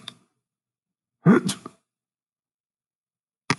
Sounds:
Sneeze